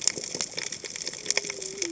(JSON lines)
{"label": "biophony, cascading saw", "recorder": "HydroMoth"}